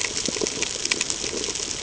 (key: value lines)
label: ambient
recorder: HydroMoth